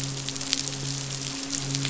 {"label": "biophony, midshipman", "recorder": "SoundTrap 500"}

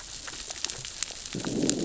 {"label": "biophony, growl", "recorder": "SoundTrap 600 or HydroMoth"}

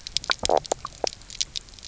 {"label": "biophony, knock croak", "recorder": "SoundTrap 300"}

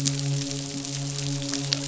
{"label": "biophony, midshipman", "recorder": "SoundTrap 500"}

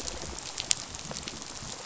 {"label": "biophony, rattle response", "recorder": "SoundTrap 500"}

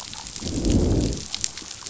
{"label": "biophony, growl", "recorder": "SoundTrap 500"}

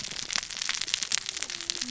{"label": "biophony, cascading saw", "recorder": "SoundTrap 600 or HydroMoth"}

